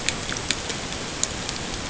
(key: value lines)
label: ambient
recorder: HydroMoth